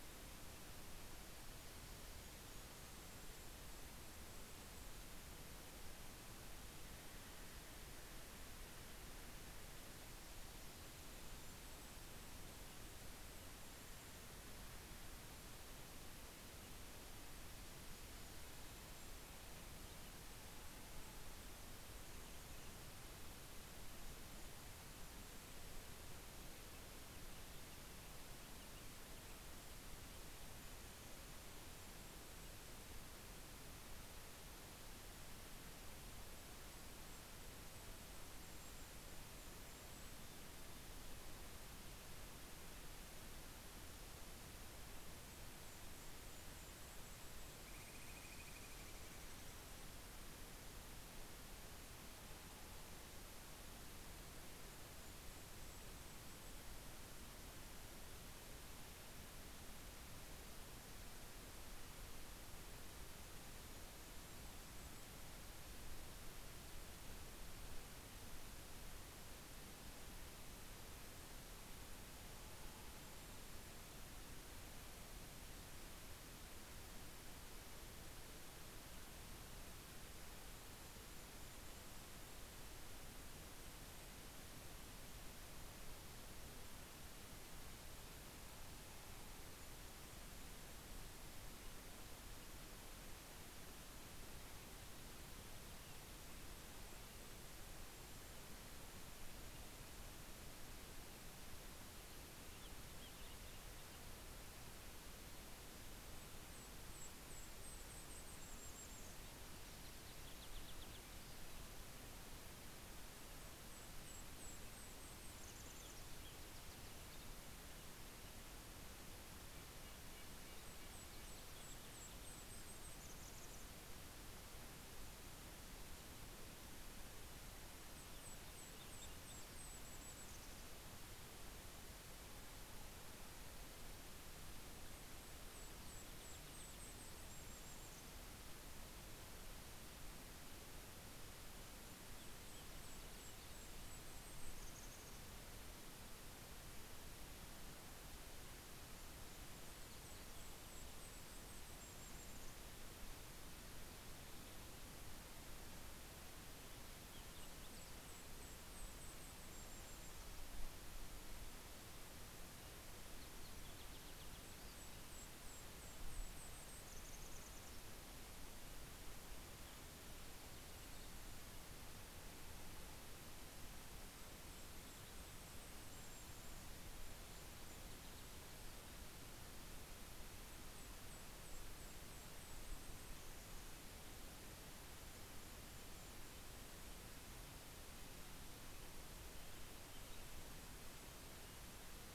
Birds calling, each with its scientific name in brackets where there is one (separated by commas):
Golden-crowned Kinglet (Regulus satrapa), Steller's Jay (Cyanocitta stelleri), Red-breasted Nuthatch (Sitta canadensis)